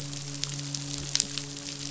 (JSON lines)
{"label": "biophony, midshipman", "recorder": "SoundTrap 500"}